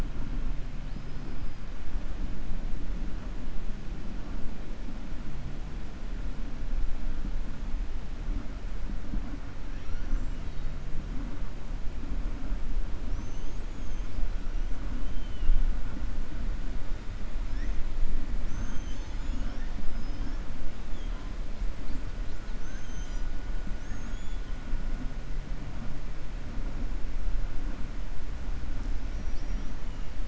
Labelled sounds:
0.8	1.6	killer whale, 4.2 to 5.6 kHz
13.0	14.1	killer whale, 5.4 to 7.9 kHz
19.8	20.4	killer whale, 4.6 to 6.3 kHz
29.0	29.8	killer whale, 4.4 to 6.3 kHz

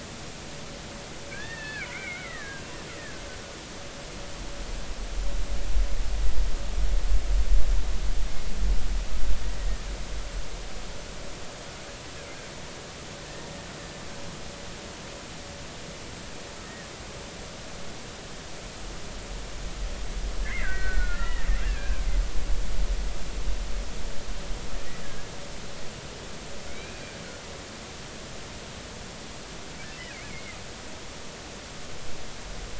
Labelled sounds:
0.1	3.2	killer whale, Bigg's (transient), 1.1 to 3.7 kHz
20.4	22.0	killer whale, Bigg's (transient), 1.3 to 2.8 kHz
25.0	25.3	killer whale, Bigg's (transient), 1.6 to 1.8 kHz
26.7	27.1	killer whale, Bigg's (transient), 2.1 to 2.6 kHz
30.3	30.6	killer whale, Bigg's (transient), 2.0 to 2.3 kHz

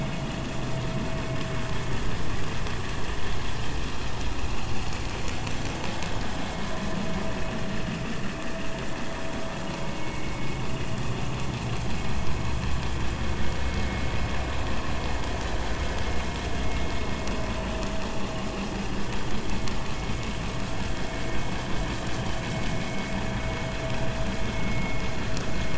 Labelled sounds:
9.9	10.6	vessel noise, 2.0 to 2.3 kHz
24.5	25.0	vessel noise, 2.1 to 2.2 kHz

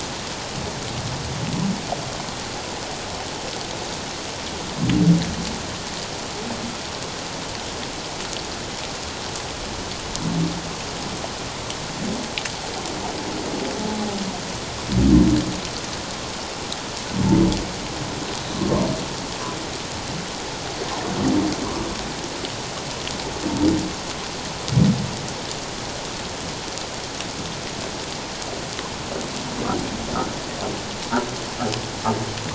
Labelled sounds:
18.5	18.8	humpback whale, 1.0 to 1.2 kHz

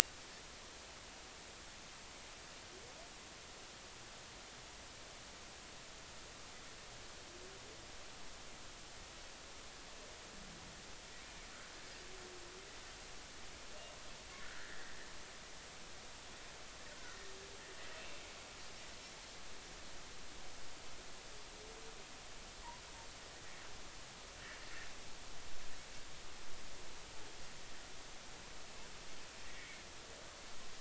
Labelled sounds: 14.4	14.9	Pacific white-sided dolphin, 1.3 to 2.0 kHz
16.9	17.2	Pacific white-sided dolphin, 1.3 to 1.6 kHz
29.5	29.8	Pacific white-sided dolphin, 2.0 to 2.3 kHz

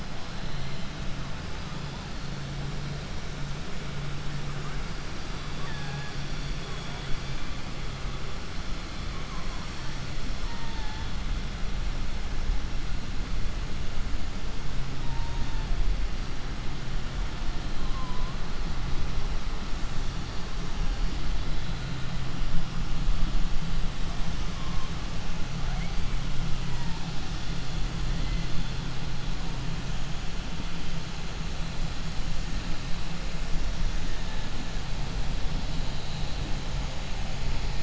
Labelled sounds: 5.5	6.1	killer whale, 0.81 to 3.4 kHz

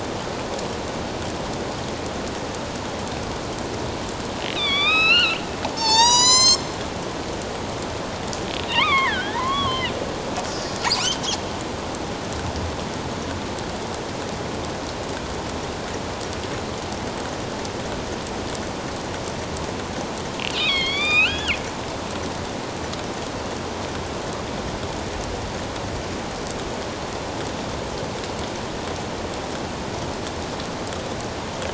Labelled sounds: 4.5	5.4	killer whale, northern resident, A clan, AB subclan, 1.1 to 5.9 kHz
5.7	6.7	killer whale, northern resident, A clan, AB subclan, 0.78 to 8.0 kHz
8.6	9.9	killer whale, northern resident, A clan, AB subclan, 0.81 to 4.2 kHz
10.9	11.2	killer whale, northern resident, A clan, AB subclan, 2.3 to 3.3 kHz
20.5	21.6	killer whale, northern resident, A clan, AB subclan, 1.0 to 5.2 kHz

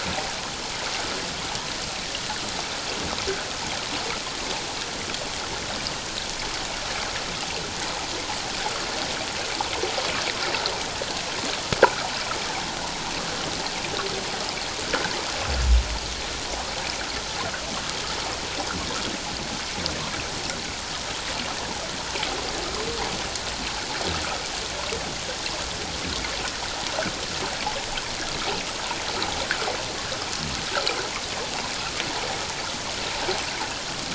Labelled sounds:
11.8	12.1	water noise, 1.2 to 1.7 kHz

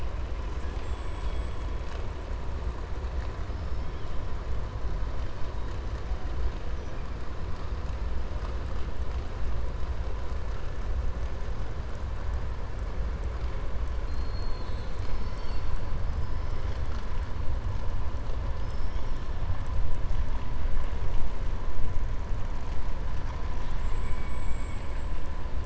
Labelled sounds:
18.5	19.2	killer whale, 4.4 to 6.5 kHz

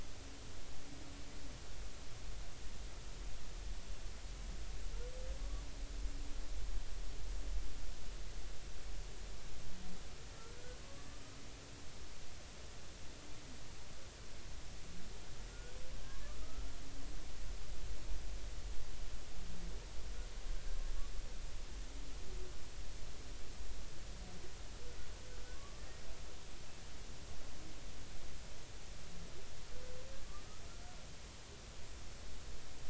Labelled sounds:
5.4	5.6	humpback whale, 1.1 to 1.2 kHz
10.8	11.1	humpback whale, 1.1 to 1.2 kHz
25.5	25.8	humpback whale, 0.99 to 1.2 kHz

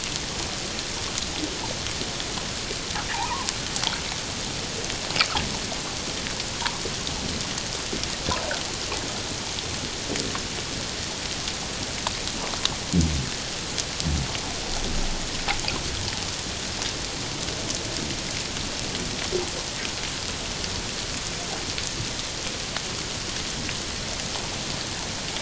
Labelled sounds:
3.1	3.5	water noise, 0.78 to 1.2 kHz

